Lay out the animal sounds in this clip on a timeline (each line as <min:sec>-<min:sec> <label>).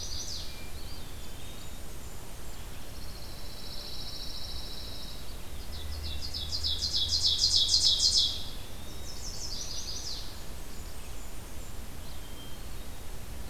0:00.0-0:00.8 Chestnut-sided Warbler (Setophaga pensylvanica)
0:00.0-0:03.1 Red-eyed Vireo (Vireo olivaceus)
0:00.5-0:02.0 Eastern Wood-Pewee (Contopus virens)
0:00.9-0:02.6 Blackburnian Warbler (Setophaga fusca)
0:02.6-0:05.6 Pine Warbler (Setophaga pinus)
0:05.4-0:08.8 Ovenbird (Seiurus aurocapilla)
0:08.1-0:09.4 Eastern Wood-Pewee (Contopus virens)
0:08.8-0:10.4 Chestnut-sided Warbler (Setophaga pensylvanica)
0:10.3-0:11.8 Blackburnian Warbler (Setophaga fusca)
0:11.0-0:13.5 Red-eyed Vireo (Vireo olivaceus)